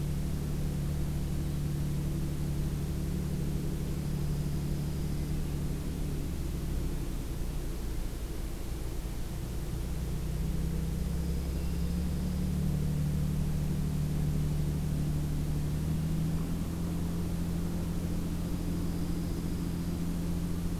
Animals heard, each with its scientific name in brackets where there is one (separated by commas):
Hermit Thrush (Catharus guttatus), Dark-eyed Junco (Junco hyemalis)